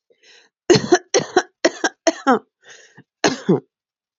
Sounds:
Cough